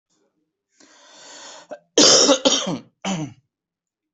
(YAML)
expert_labels:
- quality: ok
  cough_type: unknown
  dyspnea: false
  wheezing: false
  stridor: false
  choking: false
  congestion: false
  nothing: true
  diagnosis: lower respiratory tract infection
  severity: mild
age: 45
gender: male
respiratory_condition: true
fever_muscle_pain: false
status: symptomatic